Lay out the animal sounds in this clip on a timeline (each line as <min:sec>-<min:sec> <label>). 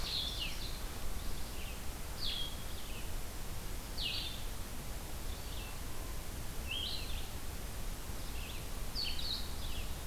0:00.0-0:00.9 Ovenbird (Seiurus aurocapilla)
0:00.1-0:10.1 Red-eyed Vireo (Vireo olivaceus)
0:00.2-0:10.1 Blue-headed Vireo (Vireo solitarius)
0:09.5-0:10.1 Eastern Wood-Pewee (Contopus virens)